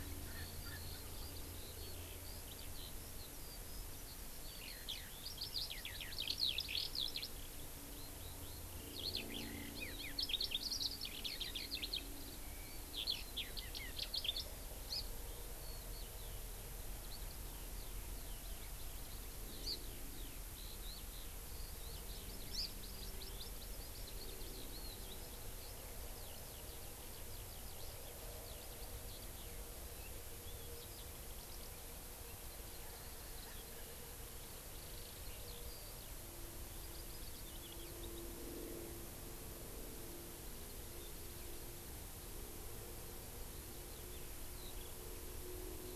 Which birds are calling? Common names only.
Erckel's Francolin, Eurasian Skylark, Hawaii Amakihi